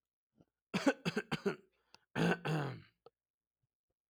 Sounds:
Cough